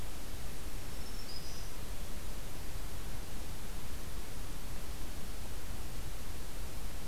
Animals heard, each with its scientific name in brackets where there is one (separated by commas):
Black-throated Green Warbler (Setophaga virens)